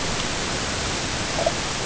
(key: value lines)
label: ambient
recorder: HydroMoth